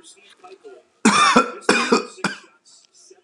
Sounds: Cough